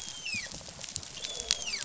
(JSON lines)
{"label": "biophony, dolphin", "recorder": "SoundTrap 500"}
{"label": "biophony", "recorder": "SoundTrap 500"}